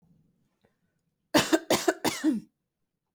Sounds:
Cough